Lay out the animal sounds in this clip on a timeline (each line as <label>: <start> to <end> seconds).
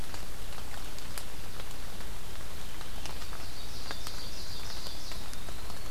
Ovenbird (Seiurus aurocapilla): 2.9 to 5.2 seconds
Eastern Wood-Pewee (Contopus virens): 5.0 to 5.9 seconds